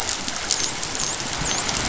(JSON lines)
{"label": "biophony, dolphin", "recorder": "SoundTrap 500"}